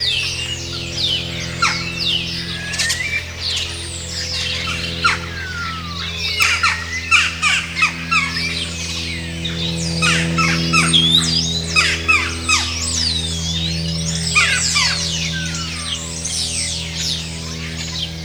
Is there a crowd of people?
no